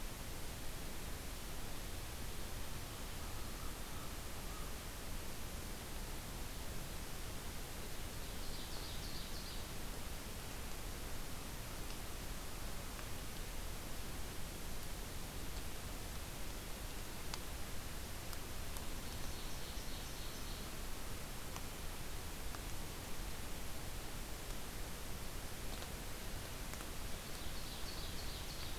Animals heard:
Ovenbird (Seiurus aurocapilla)
American Crow (Corvus brachyrhynchos)

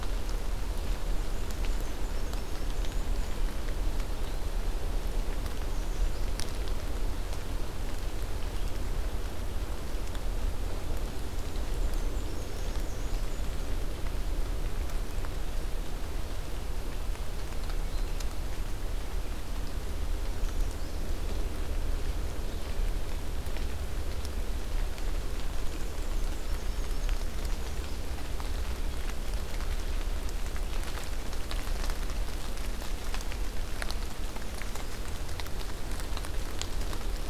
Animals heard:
American Redstart (Setophaga ruticilla)
Black-and-white Warbler (Mniotilta varia)

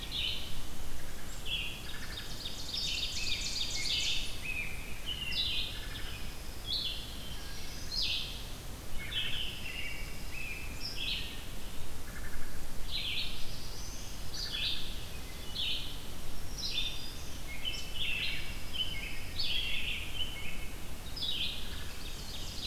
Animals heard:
American Robin (Turdus migratorius)
Ovenbird (Seiurus aurocapilla)
Black-throated Blue Warbler (Setophaga caerulescens)
Black-throated Green Warbler (Setophaga virens)
Wood Thrush (Hylocichla mustelina)
Red-eyed Vireo (Vireo olivaceus)
Pine Warbler (Setophaga pinus)

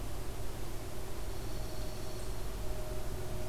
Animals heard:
Dark-eyed Junco (Junco hyemalis)

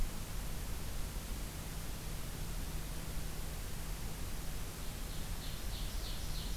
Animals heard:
Ovenbird (Seiurus aurocapilla)

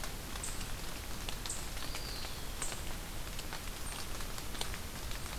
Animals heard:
Eastern Wood-Pewee (Contopus virens)

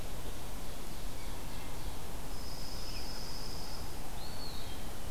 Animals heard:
Dark-eyed Junco (Junco hyemalis)
Ovenbird (Seiurus aurocapilla)
Eastern Wood-Pewee (Contopus virens)

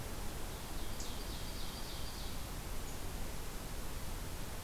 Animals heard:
Ovenbird (Seiurus aurocapilla)

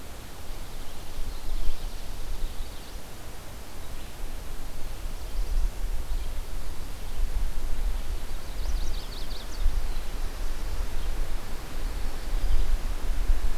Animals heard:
Black-throated Blue Warbler (Setophaga caerulescens)
Magnolia Warbler (Setophaga magnolia)
Chestnut-sided Warbler (Setophaga pensylvanica)

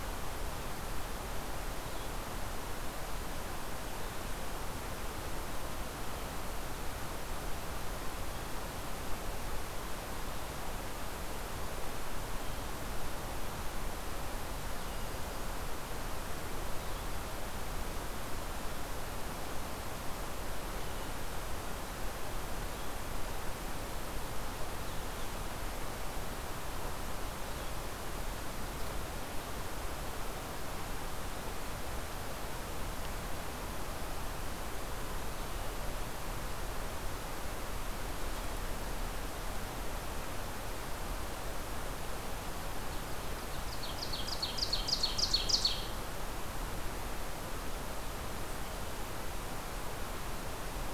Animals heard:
Ovenbird (Seiurus aurocapilla)

